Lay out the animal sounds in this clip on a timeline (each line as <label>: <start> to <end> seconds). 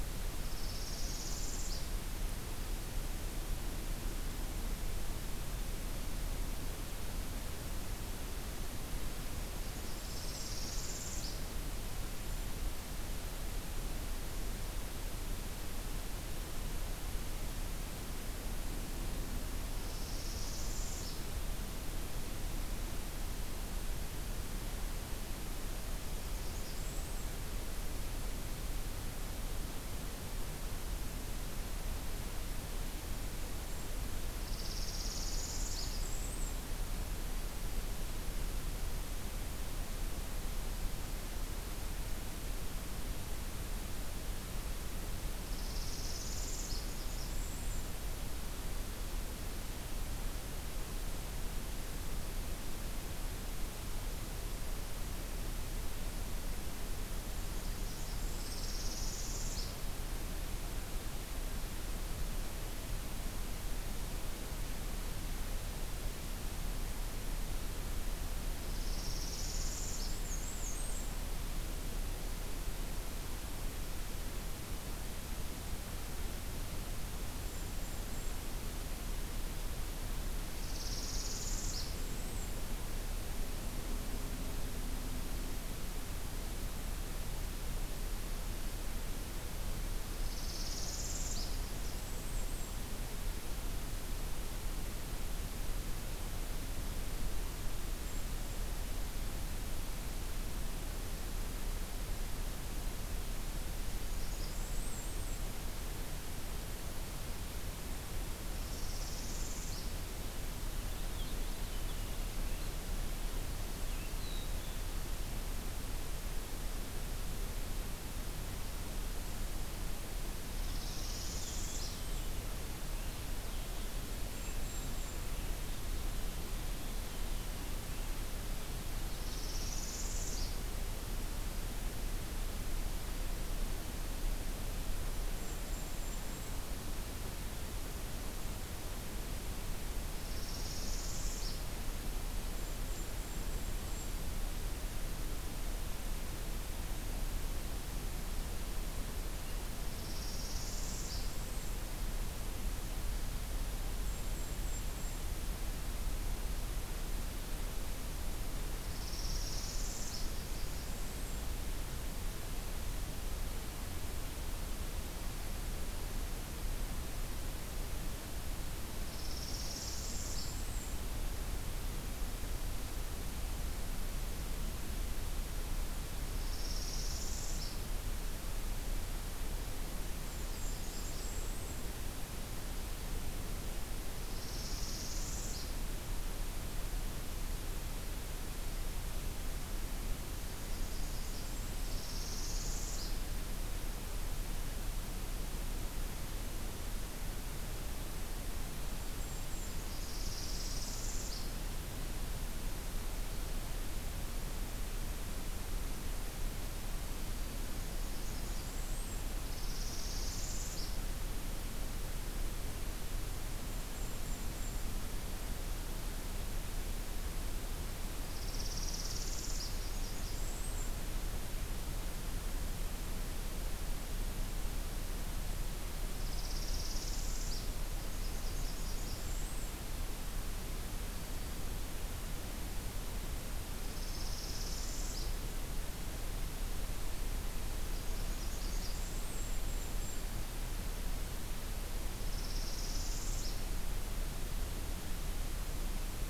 Northern Parula (Setophaga americana): 0.4 to 1.9 seconds
Black-and-white Warbler (Mniotilta varia): 9.3 to 10.5 seconds
Northern Parula (Setophaga americana): 9.6 to 11.6 seconds
Northern Parula (Setophaga americana): 19.7 to 21.2 seconds
Blackburnian Warbler (Setophaga fusca): 25.6 to 27.3 seconds
Northern Parula (Setophaga americana): 34.4 to 36.0 seconds
Black-and-white Warbler (Mniotilta varia): 35.3 to 36.6 seconds
Northern Parula (Setophaga americana): 45.4 to 47.1 seconds
Blackburnian Warbler (Setophaga fusca): 46.8 to 47.9 seconds
Blackburnian Warbler (Setophaga fusca): 57.3 to 58.8 seconds
Northern Parula (Setophaga americana): 58.3 to 59.9 seconds
Northern Parula (Setophaga americana): 68.6 to 70.2 seconds
Black-and-white Warbler (Mniotilta varia): 70.1 to 71.2 seconds
Golden-crowned Kinglet (Regulus satrapa): 77.3 to 78.4 seconds
Northern Parula (Setophaga americana): 80.6 to 81.9 seconds
Black-and-white Warbler (Mniotilta varia): 81.9 to 82.6 seconds
Northern Parula (Setophaga americana): 90.2 to 91.7 seconds
Blackburnian Warbler (Setophaga fusca): 91.5 to 92.9 seconds
Golden-crowned Kinglet (Regulus satrapa): 97.2 to 98.7 seconds
Blackburnian Warbler (Setophaga fusca): 103.9 to 105.5 seconds
Golden-crowned Kinglet (Regulus satrapa): 108.1 to 109.2 seconds
Northern Parula (Setophaga americana): 108.5 to 110.1 seconds
Purple Finch (Haemorhous purpureus): 110.6 to 114.1 seconds
Black-capped Chickadee (Poecile atricapillus): 114.0 to 115.0 seconds
Purple Finch (Haemorhous purpureus): 120.6 to 127.7 seconds
Northern Parula (Setophaga americana): 120.6 to 122.0 seconds
Golden-crowned Kinglet (Regulus satrapa): 124.2 to 125.3 seconds
Northern Parula (Setophaga americana): 129.0 to 130.8 seconds
Golden-crowned Kinglet (Regulus satrapa): 135.0 to 136.8 seconds
Northern Parula (Setophaga americana): 140.0 to 141.6 seconds
Golden-crowned Kinglet (Regulus satrapa): 142.5 to 144.2 seconds
Northern Parula (Setophaga americana): 150.0 to 151.3 seconds
Blackburnian Warbler (Setophaga fusca): 150.9 to 151.9 seconds
Golden-crowned Kinglet (Regulus satrapa): 154.0 to 155.4 seconds
Northern Parula (Setophaga americana): 158.9 to 160.3 seconds
Blackburnian Warbler (Setophaga fusca): 160.0 to 161.6 seconds
Northern Parula (Setophaga americana): 169.0 to 170.6 seconds
Black-and-white Warbler (Mniotilta varia): 169.1 to 171.1 seconds
Northern Parula (Setophaga americana): 176.3 to 177.9 seconds
Blackburnian Warbler (Setophaga fusca): 180.3 to 182.0 seconds
Golden-crowned Kinglet (Regulus satrapa): 180.4 to 182.0 seconds
Northern Parula (Setophaga americana): 184.2 to 185.7 seconds
Blackburnian Warbler (Setophaga fusca): 190.5 to 192.0 seconds
Northern Parula (Setophaga americana): 191.8 to 193.2 seconds
Golden-crowned Kinglet (Regulus satrapa): 198.7 to 199.9 seconds
Northern Parula (Setophaga americana): 199.7 to 201.6 seconds
Blackburnian Warbler (Setophaga fusca): 200.1 to 201.0 seconds
Blackburnian Warbler (Setophaga fusca): 207.8 to 209.4 seconds
Northern Parula (Setophaga americana): 209.5 to 211.0 seconds
Golden-crowned Kinglet (Regulus satrapa): 213.2 to 214.9 seconds
Northern Parula (Setophaga americana): 218.2 to 219.7 seconds
Blackburnian Warbler (Setophaga fusca): 219.5 to 221.0 seconds
Northern Parula (Setophaga americana): 226.1 to 227.7 seconds
Blackburnian Warbler (Setophaga fusca): 228.0 to 229.9 seconds
Black-throated Green Warbler (Setophaga virens): 231.0 to 231.7 seconds
Northern Parula (Setophaga americana): 233.9 to 235.4 seconds
Blackburnian Warbler (Setophaga fusca): 237.8 to 239.5 seconds
Golden-crowned Kinglet (Regulus satrapa): 239.1 to 240.3 seconds
Northern Parula (Setophaga americana): 242.2 to 243.8 seconds